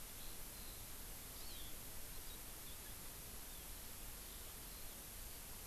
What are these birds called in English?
Eurasian Skylark, Hawaii Amakihi